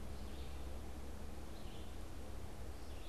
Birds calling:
Red-eyed Vireo (Vireo olivaceus)

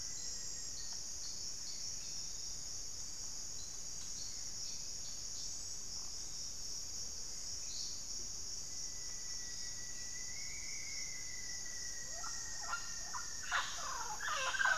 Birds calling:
Rufous-fronted Antthrush (Formicarius rufifrons), Wing-barred Piprites (Piprites chloris), White-rumped Sirystes (Sirystes albocinereus), Mealy Parrot (Amazona farinosa), Black-faced Antthrush (Formicarius analis)

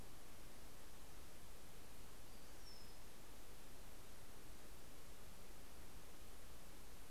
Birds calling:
Brown-headed Cowbird (Molothrus ater)

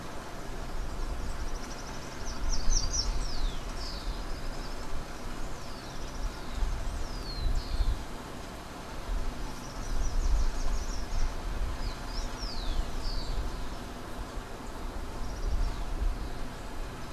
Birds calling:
Rufous-collared Sparrow (Zonotrichia capensis), Slate-throated Redstart (Myioborus miniatus), Common Tody-Flycatcher (Todirostrum cinereum)

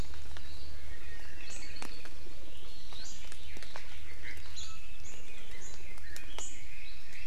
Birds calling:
Apapane (Himatione sanguinea), Chinese Hwamei (Garrulax canorus)

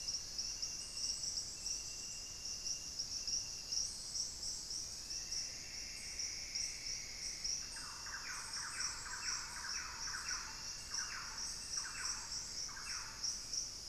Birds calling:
Thrush-like Wren (Campylorhynchus turdinus), Plumbeous Antbird (Myrmelastes hyperythrus)

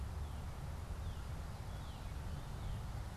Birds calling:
Northern Cardinal (Cardinalis cardinalis)

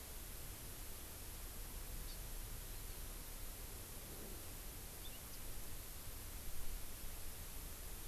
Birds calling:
Hawaii Amakihi (Chlorodrepanis virens)

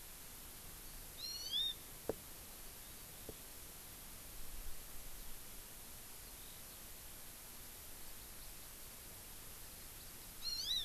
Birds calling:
Eurasian Skylark (Alauda arvensis), Hawaii Amakihi (Chlorodrepanis virens)

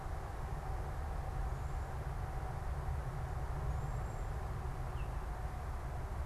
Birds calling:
Baltimore Oriole (Icterus galbula), Cedar Waxwing (Bombycilla cedrorum)

